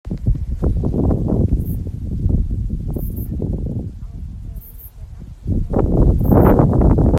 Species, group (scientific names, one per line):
Ephippiger ephippiger
Orthoptera